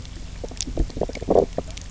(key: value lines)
label: biophony
recorder: SoundTrap 300